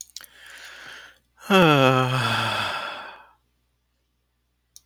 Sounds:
Sigh